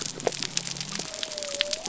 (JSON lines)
{"label": "biophony", "recorder": "SoundTrap 300"}